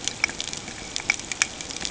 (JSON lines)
{"label": "ambient", "recorder": "HydroMoth"}